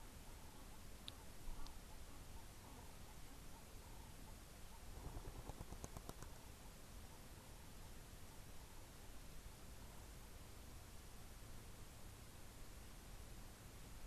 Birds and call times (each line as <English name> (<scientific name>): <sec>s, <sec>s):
Ring-necked Dove (Streptopelia capicola): 1.5s